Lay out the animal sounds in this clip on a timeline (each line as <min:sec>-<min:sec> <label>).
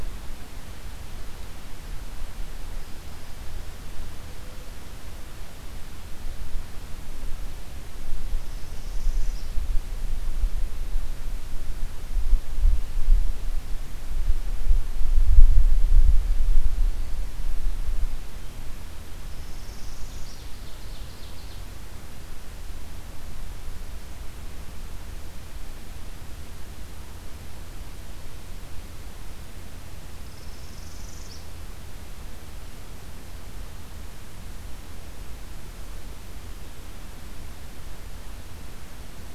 0:08.3-0:09.7 Northern Parula (Setophaga americana)
0:19.1-0:20.7 Northern Parula (Setophaga americana)
0:20.4-0:21.8 Ovenbird (Seiurus aurocapilla)
0:30.1-0:31.6 Northern Parula (Setophaga americana)